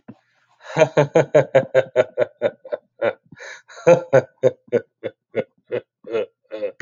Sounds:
Laughter